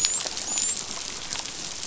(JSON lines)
{"label": "biophony, dolphin", "recorder": "SoundTrap 500"}